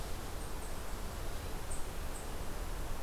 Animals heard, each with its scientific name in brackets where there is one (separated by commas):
Eastern Chipmunk (Tamias striatus)